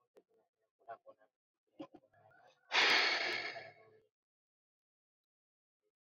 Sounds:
Sigh